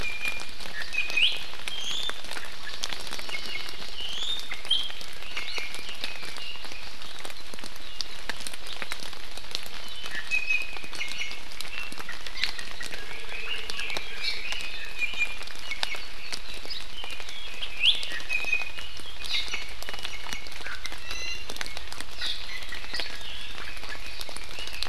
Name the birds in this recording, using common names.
Iiwi, Hawaii Amakihi, Red-billed Leiothrix